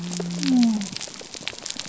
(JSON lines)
{"label": "biophony", "recorder": "SoundTrap 300"}